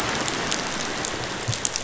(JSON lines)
{"label": "biophony, pulse", "recorder": "SoundTrap 500"}